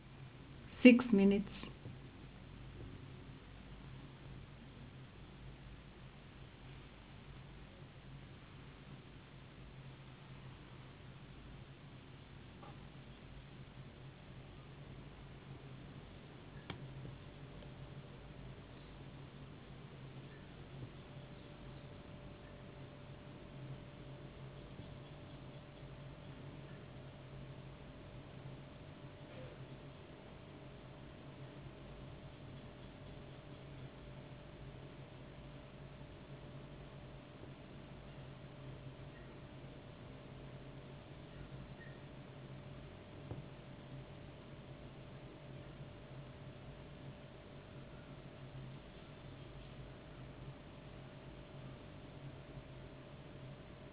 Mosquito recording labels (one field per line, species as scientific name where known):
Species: no mosquito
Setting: insect culture